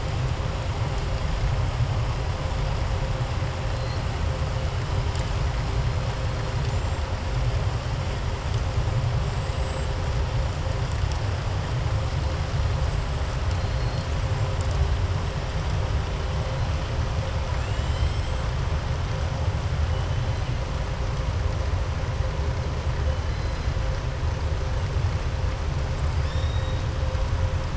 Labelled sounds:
13.5	14.1	killer whale, southern resident, 4.1 to 5.1 kHz
26.1	26.8	killer whale, southern resident, 3.4 to 7.4 kHz

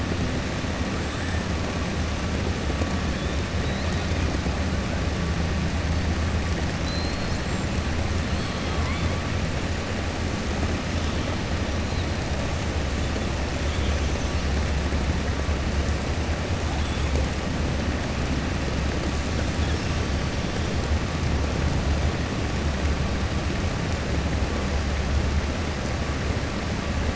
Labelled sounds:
3.6	4.1	killer whale, 3.5 to 4.8 kHz
6.7	7.4	killer whale, 3.9 to 5.3 kHz

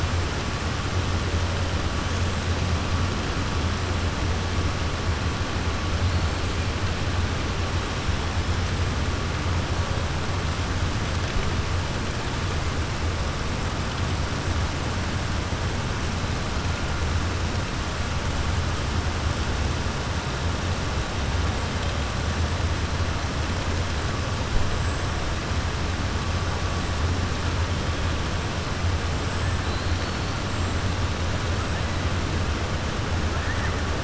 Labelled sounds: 29.6	30.3	killer whale, 3.9 to 4.6 kHz

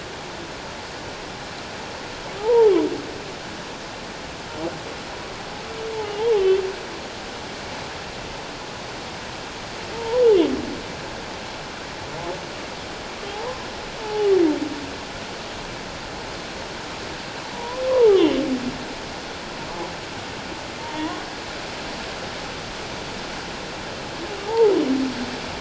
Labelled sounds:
2.4	2.7	humpback whale, 0.78 to 1.0 kHz
9.9	10.2	humpback whale, 0.88 to 1.0 kHz
13.3	14.3	humpback whale, 0.78 to 1.1 kHz
17.5	18.2	humpback whale, 0.78 to 1.2 kHz
20.8	21.2	humpback whale, 0.88 to 1.1 kHz
24.5	24.7	humpback whale, 0.78 to 1.0 kHz

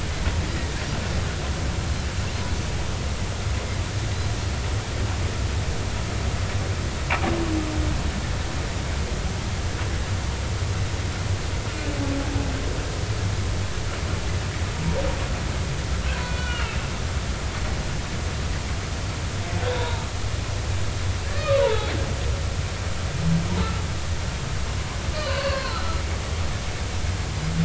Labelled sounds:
16.2	16.8	humpback whale, 1.3 to 3.5 kHz
19.7	20.1	humpback whale, 0.86 to 1.0 kHz
21.3	21.9	humpback whale, 0.80 to 3.9 kHz
25.2	26.0	humpback whale, 0.99 to 4.5 kHz

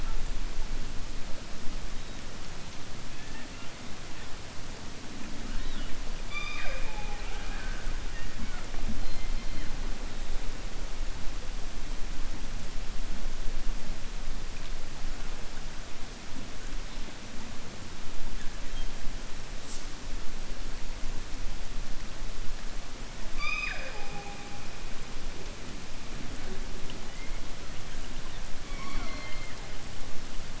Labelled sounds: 3.1	3.7	killer whale, 0.88 to 2.8 kHz
23.2	24.4	killer whale, 0.43 to 6.2 kHz

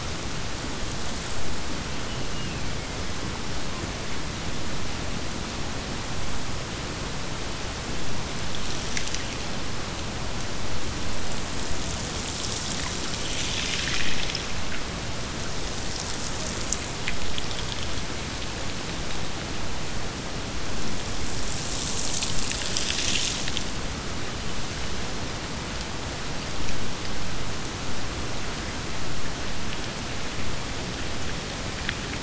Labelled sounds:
2.0	3.5	killer whale, Bigg's (transient), Gulf of Alaska transient, 1.7 to 3.1 kHz

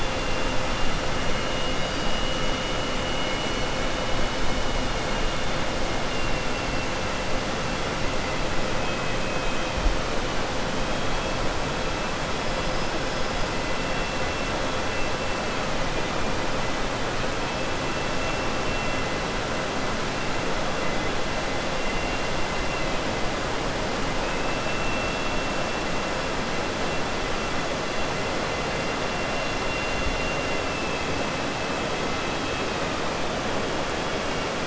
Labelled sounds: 1.4	2.2	killer whale, southern resident, 2.2 to 5.7 kHz
24.2	24.8	killer whale, southern resident, 2.5 to 3.3 kHz

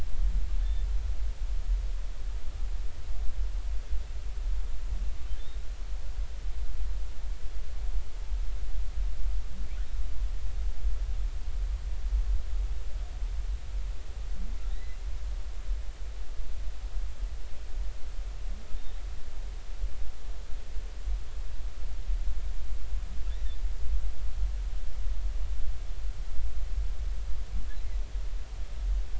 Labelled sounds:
0.6	0.9	humpback whale, 3.5 to 3.6 kHz
5.4	5.6	humpback whale, 3.5 to 3.8 kHz
14.7	15.0	humpback whale, 1.8 to 4.1 kHz

